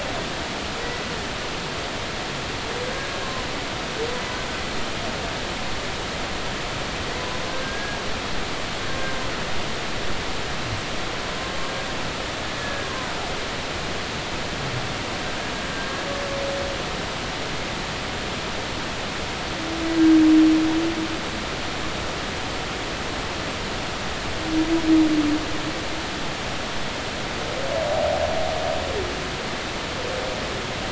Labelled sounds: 0.8	1.1	humpback whale, 1.9 to 2.0 kHz
7.1	8.0	humpback whale, 0.93 to 1.7 kHz
12.6	12.9	humpback whale, 1.6 to 1.8 kHz

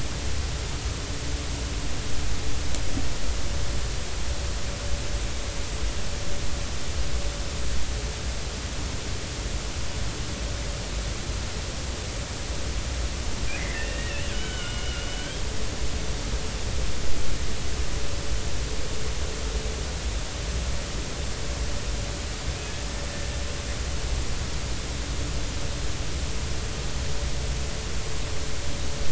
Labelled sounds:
13.6	15.4	killer whale, Bigg's (transient), 1.4 to 3.3 kHz

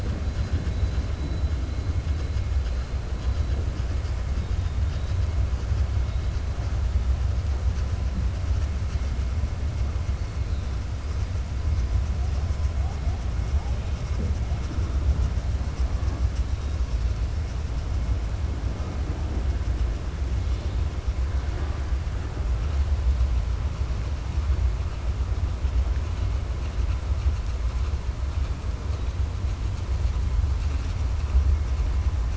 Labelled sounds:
0.3	1.0	killer whale, southern resident, 3.3 to 5.0 kHz

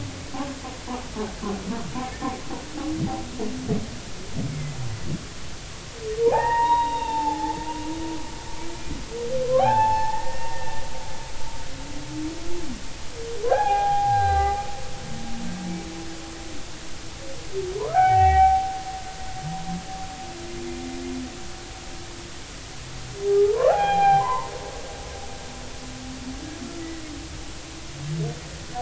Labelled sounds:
2.0	2.2	humpback whale, 2.1 to 2.3 kHz
6.2	7.6	humpback whale, 0.80 to 3.8 kHz
9.6	10.8	humpback whale, 0.80 to 2.7 kHz
13.5	14.6	humpback whale, 0.80 to 4.0 kHz
17.8	18.7	humpback whale, 0.80 to 2.4 kHz
23.3	24.5	humpback whale, 0.80 to 4.1 kHz

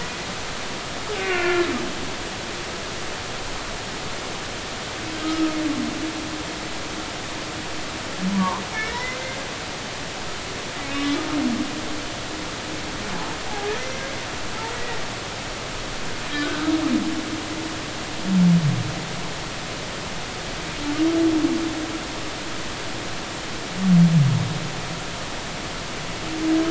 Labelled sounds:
1.2	1.7	humpback whale, 1.3 to 2.8 kHz
5.2	5.6	humpback whale, 1.2 to 1.3 kHz
8.3	9.4	humpback whale, 0.86 to 2.1 kHz
10.9	11.2	humpback whale, 2.8 to 3.7 kHz
14.8	15.0	humpback whale, 1.9 to 2.0 kHz
16.4	16.7	humpback whale, 1.4 to 1.6 kHz

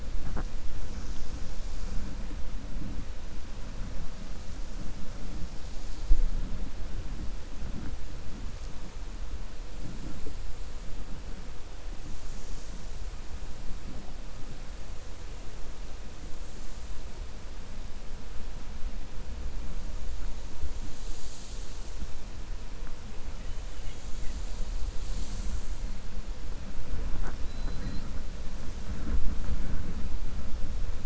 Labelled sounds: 27.4	28.1	killer whale, 3.9 to 5.1 kHz

